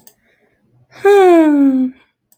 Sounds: Sigh